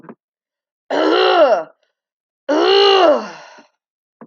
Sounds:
Throat clearing